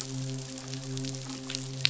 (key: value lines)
label: biophony, midshipman
recorder: SoundTrap 500